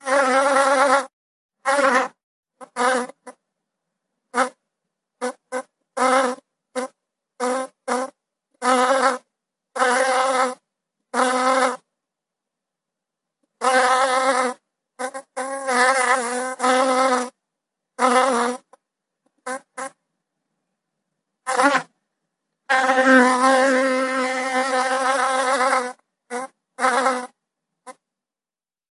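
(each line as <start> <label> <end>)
0.0 A fly is buzzing. 3.4
4.2 A fly buzzes repeatedly. 11.9
13.6 A fly buzzes repeatedly. 20.0
21.4 A fly buzzes repeatedly. 28.1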